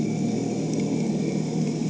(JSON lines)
{"label": "anthrophony, boat engine", "recorder": "HydroMoth"}